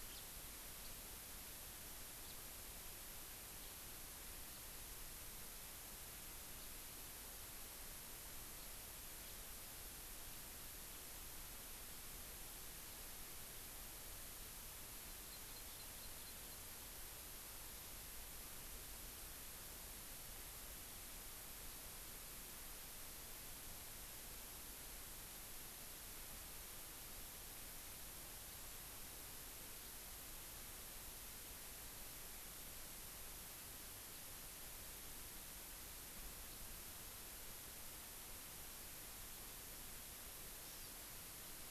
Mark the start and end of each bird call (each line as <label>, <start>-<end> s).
House Finch (Haemorhous mexicanus), 0.1-0.3 s
House Finch (Haemorhous mexicanus), 2.2-2.3 s
Hawaii Amakihi (Chlorodrepanis virens), 15.0-16.7 s
Hawaii Amakihi (Chlorodrepanis virens), 40.6-40.9 s